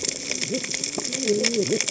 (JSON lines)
{"label": "biophony, cascading saw", "recorder": "HydroMoth"}